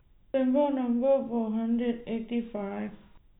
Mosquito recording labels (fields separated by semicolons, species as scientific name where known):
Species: no mosquito; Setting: cup